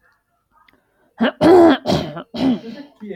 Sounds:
Throat clearing